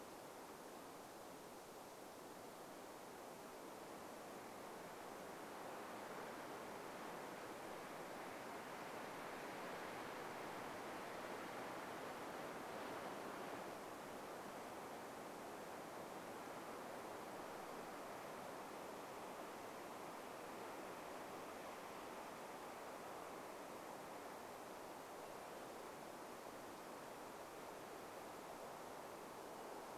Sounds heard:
forest ambience